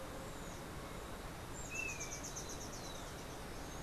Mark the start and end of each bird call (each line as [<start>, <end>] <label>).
[1.50, 2.30] Golden-faced Tyrannulet (Zimmerius chrysops)